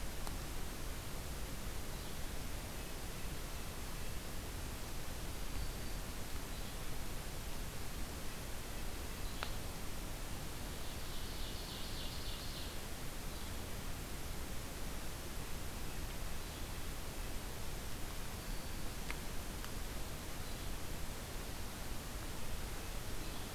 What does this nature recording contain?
Yellow-bellied Flycatcher, Black-throated Green Warbler, Ovenbird